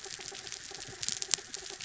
{"label": "anthrophony, mechanical", "recorder": "SoundTrap 300"}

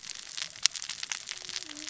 {"label": "biophony, cascading saw", "recorder": "SoundTrap 600 or HydroMoth"}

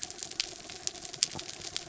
{"label": "anthrophony, mechanical", "recorder": "SoundTrap 300"}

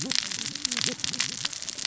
{"label": "biophony, cascading saw", "recorder": "SoundTrap 600 or HydroMoth"}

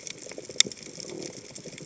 {"label": "biophony", "recorder": "HydroMoth"}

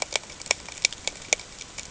{"label": "ambient", "recorder": "HydroMoth"}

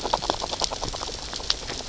{"label": "biophony, grazing", "recorder": "SoundTrap 600 or HydroMoth"}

